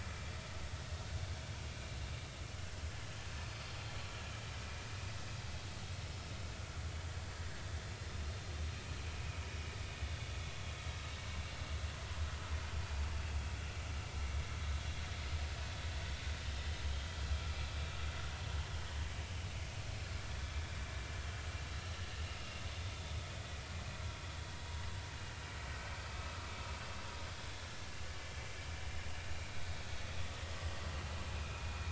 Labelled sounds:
26.1	26.4	vessel noise, 2.5 to 2.7 kHz
31.3	31.6	vessel noise, 2.3 to 2.6 kHz

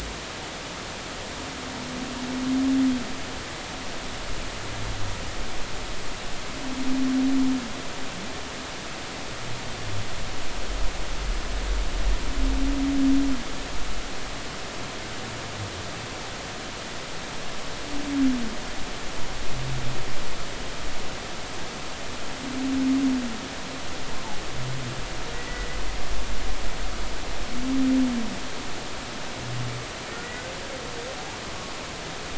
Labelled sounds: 25.3	25.8	humpback whale, 1.9 to 2.0 kHz

